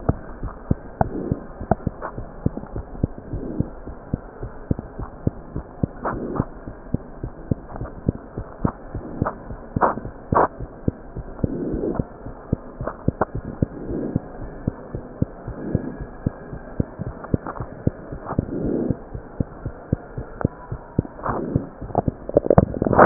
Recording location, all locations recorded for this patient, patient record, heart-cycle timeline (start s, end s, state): mitral valve (MV)
aortic valve (AV)+pulmonary valve (PV)+tricuspid valve (TV)+mitral valve (MV)
#Age: Child
#Sex: Female
#Height: 87.0 cm
#Weight: 10.2 kg
#Pregnancy status: False
#Murmur: Absent
#Murmur locations: nan
#Most audible location: nan
#Systolic murmur timing: nan
#Systolic murmur shape: nan
#Systolic murmur grading: nan
#Systolic murmur pitch: nan
#Systolic murmur quality: nan
#Diastolic murmur timing: nan
#Diastolic murmur shape: nan
#Diastolic murmur grading: nan
#Diastolic murmur pitch: nan
#Diastolic murmur quality: nan
#Outcome: Normal
#Campaign: 2015 screening campaign
0.00	2.69	unannotated
2.69	2.75	diastole
2.75	2.82	S1
2.82	3.03	systole
3.03	3.07	S2
3.07	3.32	diastole
3.32	3.42	S1
3.42	3.58	systole
3.58	3.64	S2
3.64	3.86	diastole
3.86	3.91	S1
3.91	4.11	systole
4.11	4.17	S2
4.17	4.41	diastole
4.41	4.48	S1
4.48	4.69	systole
4.69	4.76	S2
4.76	4.96	diastole
4.96	5.06	S1
5.06	5.25	systole
5.25	5.30	S2
5.30	5.55	diastole
5.55	5.62	S1
5.62	5.83	systole
5.83	5.87	S2
5.87	6.12	diastole
6.12	6.19	S1
6.19	6.37	systole
6.37	6.43	S2
6.43	6.66	diastole
6.66	6.73	S1
6.73	6.93	systole
6.93	6.98	S2
6.98	7.23	diastole
7.23	7.29	S1
7.29	7.49	systole
7.49	7.55	S2
7.55	7.80	diastole
7.80	7.87	S1
7.87	8.07	systole
8.07	8.12	S2
8.12	8.37	diastole
8.37	8.44	S1
8.44	8.63	systole
8.63	8.68	S2
8.68	8.93	diastole
8.93	9.02	S1
9.02	9.19	systole
9.19	9.25	S2
9.25	9.48	diastole
9.48	9.57	S1
9.57	9.75	systole
9.75	9.79	S2
9.79	23.06	unannotated